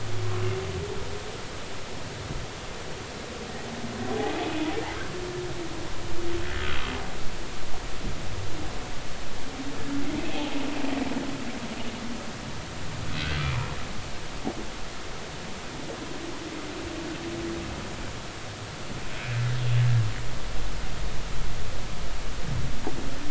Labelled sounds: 10.2	10.5	humpback whale, 2.5 to 2.7 kHz

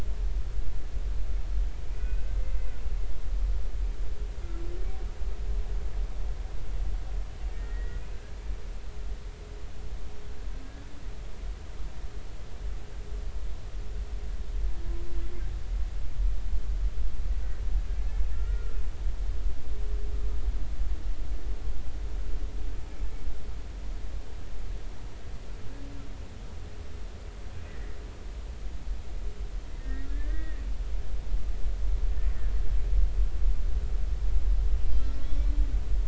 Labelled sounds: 1.8	2.8	humpback whale, 1.4 to 2.7 kHz
7.5	8.0	humpback whale, 1.8 to 2.0 kHz
18.3	18.8	humpback whale, 1.3 to 1.5 kHz
27.7	28.0	humpback whale, 1.7 to 2.0 kHz
29.8	30.6	humpback whale, 1.5 to 2.0 kHz
35.2	35.5	humpback whale, 2.2 to 3.5 kHz

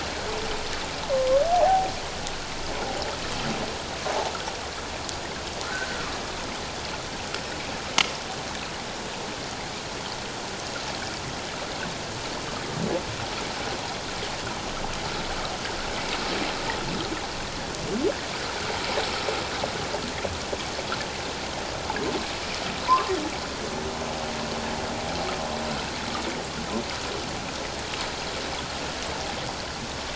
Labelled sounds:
1.5	1.9	humpback whale, 0.78 to 1.0 kHz
5.6	6.0	humpback whale, 1.2 to 1.7 kHz
22.9	23.1	humpback whale, 0.91 to 1.2 kHz

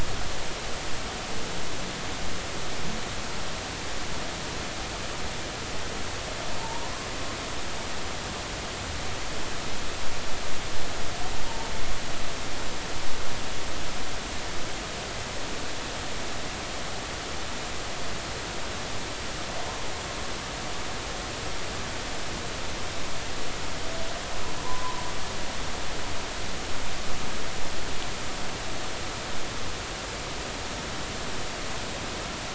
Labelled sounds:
24.6	25.0	humpback whale, 0.90 to 1.1 kHz

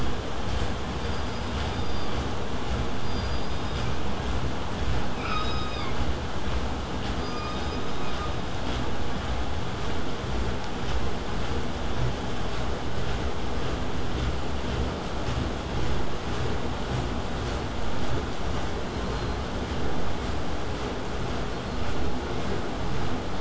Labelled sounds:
7.2	8.6	killer whale, southern resident, K pod, call S17, 1.0 to 6.2 kHz
18.8	19.5	killer whale, southern resident, 3.9 to 4.4 kHz
21.5	22.1	killer whale, southern resident, 4.0 to 4.4 kHz

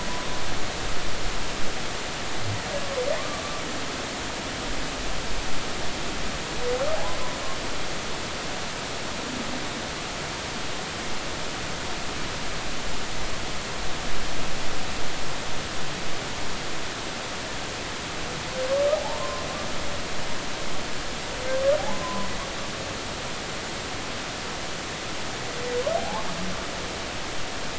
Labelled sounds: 18.9	19.4	humpback whale, 0.80 to 1.1 kHz
21.8	22.3	humpback whale, 0.80 to 1.1 kHz
26.0	26.3	humpback whale, 0.80 to 0.93 kHz

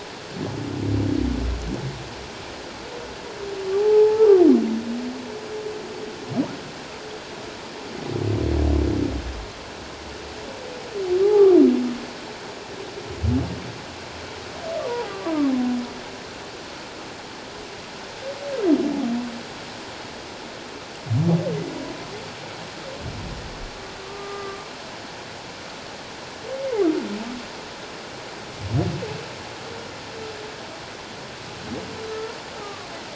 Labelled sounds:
3.8	4.3	humpback whale, 0.78 to 0.97 kHz
11.2	11.5	humpback whale, 0.78 to 0.91 kHz
14.9	15.3	humpback whale, 0.78 to 1.2 kHz
24.0	24.6	humpback whale, 1.1 to 1.2 kHz
32.6	32.9	humpback whale, 1.1 to 1.3 kHz

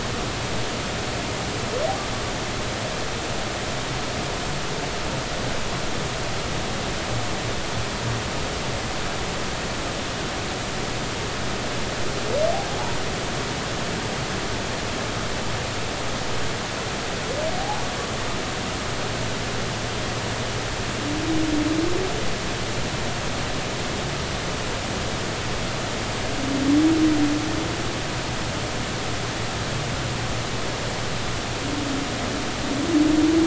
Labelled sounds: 17.6	17.9	humpback whale, 0.80 to 0.99 kHz

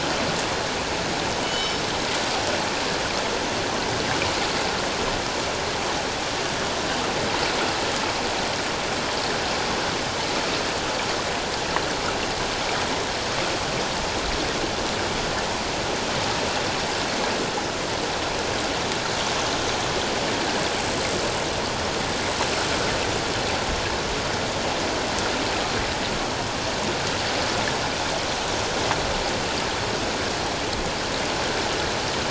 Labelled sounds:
1.4	1.8	killer whale, northern resident, G clan, 2.9 to 5.4 kHz

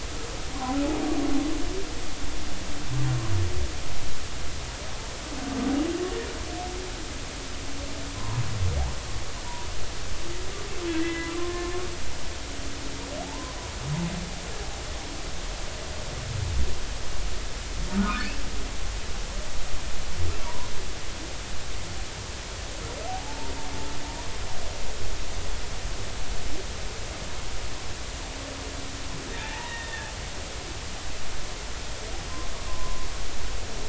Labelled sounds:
8.1	8.4	humpback whale, 0.90 to 1.1 kHz
10.9	11.8	humpback whale, 0.99 to 2.1 kHz
13.2	13.6	humpback whale, 0.80 to 1.2 kHz
17.9	18.3	humpback whale, 0.96 to 1.6 kHz
20.4	20.7	humpback whale, 0.90 to 1.2 kHz
23.1	23.5	humpback whale, 0.80 to 0.96 kHz
29.4	30.1	humpback whale, 0.83 to 3.7 kHz
32.7	33.1	humpback whale, 0.96 to 1.1 kHz

